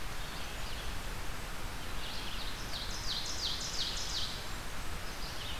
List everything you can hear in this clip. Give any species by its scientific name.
Vireo olivaceus, Seiurus aurocapilla, Setophaga fusca